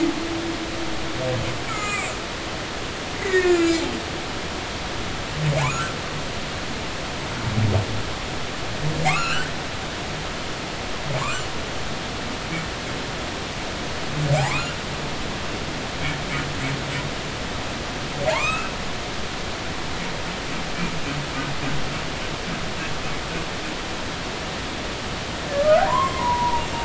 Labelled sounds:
1.7	2.1	humpback whale, 1.1 to 7.9 kHz
3.2	3.8	humpback whale, 1.3 to 7.5 kHz
5.6	5.9	humpback whale, 0.80 to 1.6 kHz
9.0	9.5	humpback whale, 1.0 to 4.7 kHz
14.4	14.8	humpback whale, 0.80 to 1.5 kHz
18.3	18.7	humpback whale, 0.80 to 2.7 kHz
25.5	26.7	humpback whale, 0.86 to 2.2 kHz

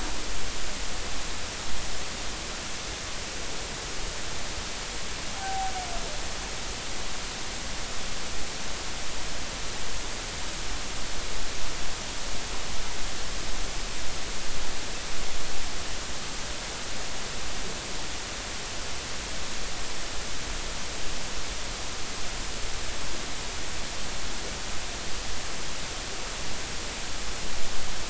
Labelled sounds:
5.4	5.7	humpback whale, 0.80 to 0.83 kHz

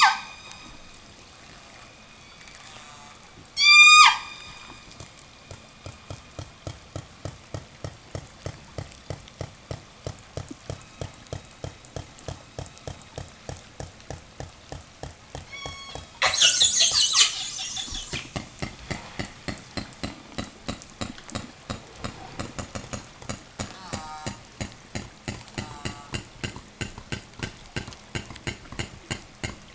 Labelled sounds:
2.0	3.3	killer whale, southern resident, call S04, 0.15 to 8.0 kHz
3.4	5.0	killer whale, southern resident, 0 to 8.0 kHz
7.4	14.5	killer whale, southern resident, 0.89 to 6.2 kHz
15.4	16.2	killer whale, southern resident, 0 to 8.0 kHz
16.2	18.5	killer whale, southern resident, call S10, 0 to 8.0 kHz
23.4	24.7	killer whale, southern resident, call S04, 0 to 8.0 kHz
25.3	26.2	killer whale, southern resident, call S04, 0 to 8.0 kHz

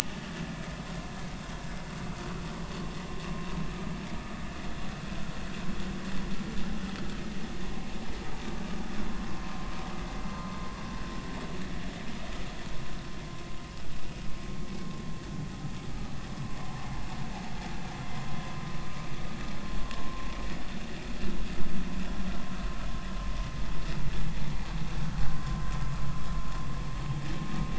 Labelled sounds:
9.3	9.6	vessel noise, 0.99 to 1.2 kHz

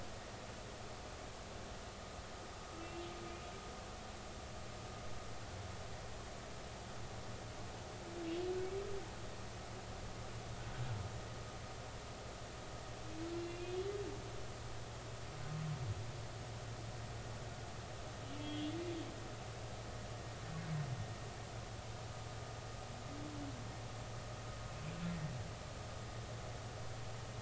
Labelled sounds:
2.8	3.0	humpback whale, 2.6 to 2.8 kHz
13.4	13.9	humpback whale, 2.4 to 3.5 kHz
18.4	18.8	humpback whale, 3.1 to 3.5 kHz

